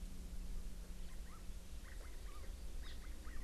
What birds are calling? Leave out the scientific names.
Chinese Hwamei